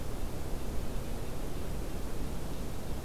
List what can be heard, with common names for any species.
forest ambience